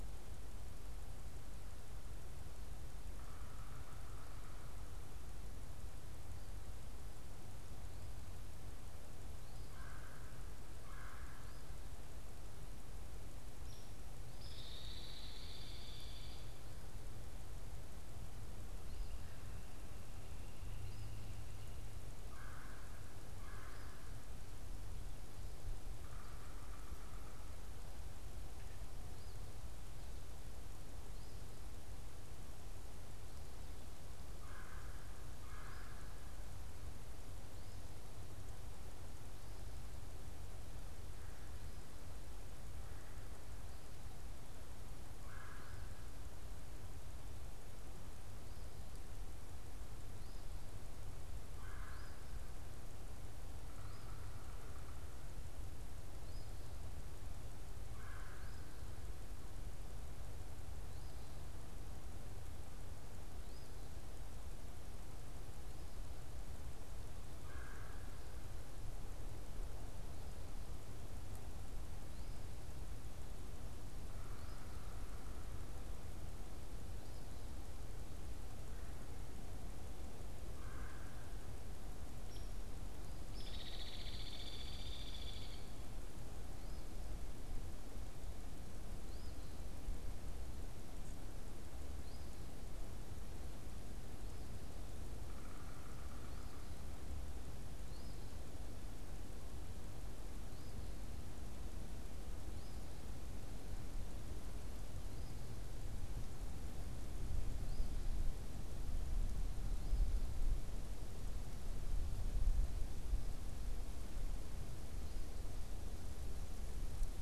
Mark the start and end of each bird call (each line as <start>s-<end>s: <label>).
2.9s-5.0s: unidentified bird
9.5s-11.7s: Red-bellied Woodpecker (Melanerpes carolinus)
13.3s-14.0s: Hairy Woodpecker (Dryobates villosus)
14.3s-16.5s: Hairy Woodpecker (Dryobates villosus)
18.6s-21.4s: Eastern Phoebe (Sayornis phoebe)
22.0s-24.2s: Red-bellied Woodpecker (Melanerpes carolinus)
25.9s-27.6s: Yellow-bellied Sapsucker (Sphyrapicus varius)
28.9s-31.7s: Eastern Phoebe (Sayornis phoebe)
34.2s-36.3s: Red-bellied Woodpecker (Melanerpes carolinus)
45.0s-46.1s: Red-bellied Woodpecker (Melanerpes carolinus)
48.7s-56.8s: Eastern Phoebe (Sayornis phoebe)
51.3s-52.5s: Red-bellied Woodpecker (Melanerpes carolinus)
53.5s-55.2s: unidentified bird
57.7s-58.8s: Red-bellied Woodpecker (Melanerpes carolinus)
60.5s-63.9s: Eastern Phoebe (Sayornis phoebe)
67.2s-68.3s: Red-bellied Woodpecker (Melanerpes carolinus)
74.0s-75.9s: unidentified bird
80.3s-81.5s: Red-bellied Woodpecker (Melanerpes carolinus)
82.1s-85.7s: Hairy Woodpecker (Dryobates villosus)
86.5s-92.4s: Eastern Phoebe (Sayornis phoebe)
95.0s-96.8s: unidentified bird
96.0s-115.5s: Eastern Phoebe (Sayornis phoebe)